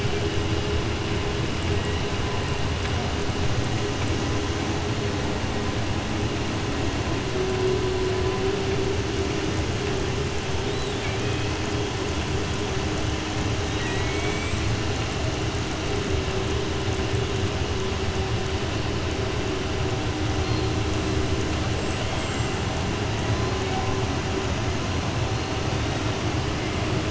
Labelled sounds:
10.6	11.5	killer whale, southern resident, 1.7 to 4.0 kHz
13.6	14.6	killer whale, southern resident, 0.96 to 4.3 kHz

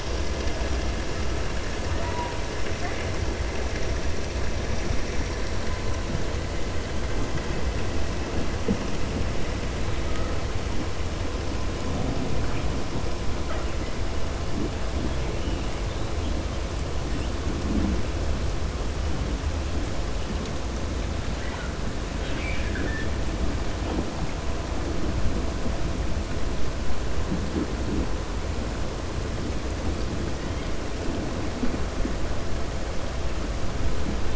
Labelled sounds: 21.3	21.7	killer whale, 0.87 to 3.0 kHz
22.1	23.1	killer whale, 1.4 to 3.9 kHz

